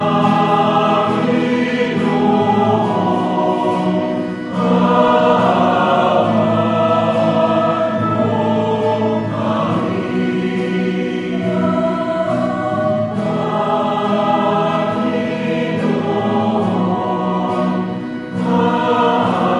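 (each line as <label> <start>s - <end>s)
A Catholic choir is singing. 0.0s - 19.6s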